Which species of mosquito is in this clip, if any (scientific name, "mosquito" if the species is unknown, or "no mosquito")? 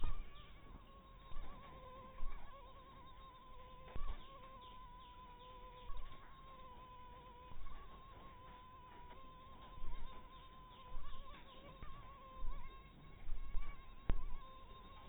mosquito